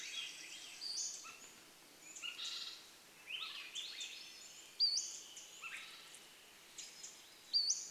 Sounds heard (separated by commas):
Swainson's Thrush call, Swainson's Thrush song, Pacific-slope Flycatcher call, unidentified bird chip note, Pacific Wren song